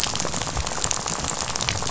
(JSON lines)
{"label": "biophony, rattle", "recorder": "SoundTrap 500"}